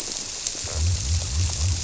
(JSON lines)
{"label": "biophony", "recorder": "SoundTrap 300"}